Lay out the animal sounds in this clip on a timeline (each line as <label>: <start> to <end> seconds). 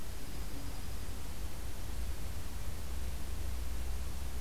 Dark-eyed Junco (Junco hyemalis): 0.0 to 1.2 seconds